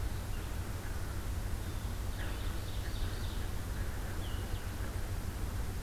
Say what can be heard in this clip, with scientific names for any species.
Vireo solitarius, Cyanocitta cristata, Seiurus aurocapilla